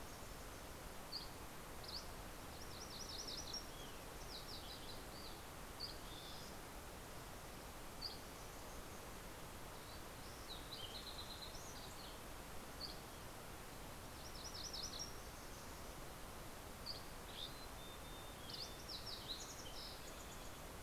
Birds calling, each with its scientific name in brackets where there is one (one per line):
Fox Sparrow (Passerella iliaca)
MacGillivray's Warbler (Geothlypis tolmiei)
Mountain Chickadee (Poecile gambeli)
Dusky Flycatcher (Empidonax oberholseri)